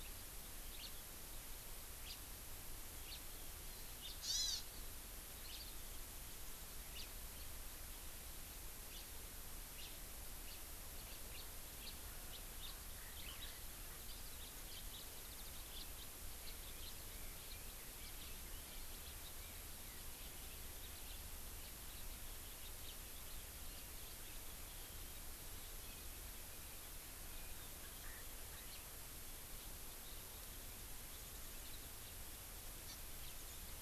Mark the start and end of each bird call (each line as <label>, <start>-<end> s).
House Finch (Haemorhous mexicanus), 0.8-1.0 s
House Finch (Haemorhous mexicanus), 2.0-2.2 s
House Finch (Haemorhous mexicanus), 3.0-3.3 s
House Finch (Haemorhous mexicanus), 4.0-4.2 s
Hawaii Amakihi (Chlorodrepanis virens), 4.2-4.7 s
House Finch (Haemorhous mexicanus), 5.4-5.7 s
House Finch (Haemorhous mexicanus), 7.0-7.1 s
House Finch (Haemorhous mexicanus), 8.9-9.1 s
House Finch (Haemorhous mexicanus), 9.7-10.0 s
House Finch (Haemorhous mexicanus), 10.4-10.7 s
House Finch (Haemorhous mexicanus), 11.0-11.5 s
House Finch (Haemorhous mexicanus), 11.8-12.0 s
House Finch (Haemorhous mexicanus), 12.3-12.8 s
House Finch (Haemorhous mexicanus), 28.6-28.9 s
Hawaii Amakihi (Chlorodrepanis virens), 32.9-33.0 s